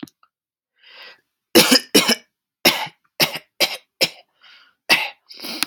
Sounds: Cough